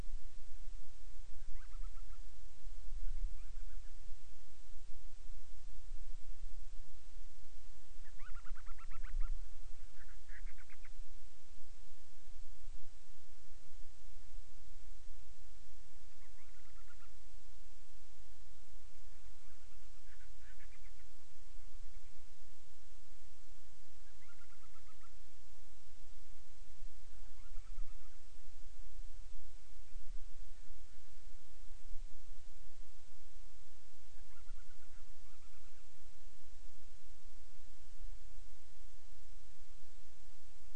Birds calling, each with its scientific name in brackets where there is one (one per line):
Band-rumped Storm-Petrel (Hydrobates castro)